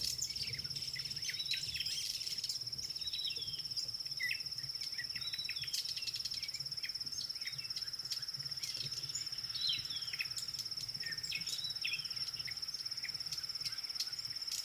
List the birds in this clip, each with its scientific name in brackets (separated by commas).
Red-backed Scrub-Robin (Cercotrichas leucophrys)